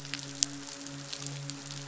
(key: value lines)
label: biophony, midshipman
recorder: SoundTrap 500